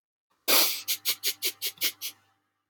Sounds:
Sniff